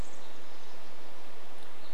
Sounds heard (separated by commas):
unidentified sound, Pacific Wren song